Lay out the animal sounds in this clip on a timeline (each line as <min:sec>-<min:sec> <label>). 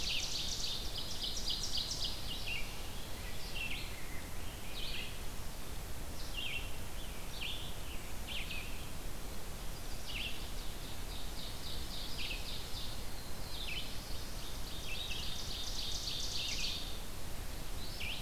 0:00.0-0:02.3 Ovenbird (Seiurus aurocapilla)
0:00.0-0:15.4 Red-eyed Vireo (Vireo olivaceus)
0:02.5-0:05.2 Rose-breasted Grosbeak (Pheucticus ludovicianus)
0:09.6-0:10.7 Chestnut-sided Warbler (Setophaga pensylvanica)
0:10.4-0:12.9 Ovenbird (Seiurus aurocapilla)
0:12.8-0:14.7 Black-throated Blue Warbler (Setophaga caerulescens)
0:14.0-0:17.0 Ovenbird (Seiurus aurocapilla)
0:16.2-0:18.2 Red-eyed Vireo (Vireo olivaceus)